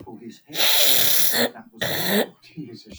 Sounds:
Sniff